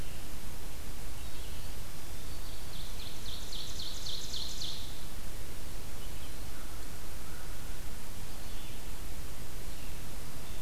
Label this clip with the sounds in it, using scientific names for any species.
Vireo olivaceus, Seiurus aurocapilla, Corvus brachyrhynchos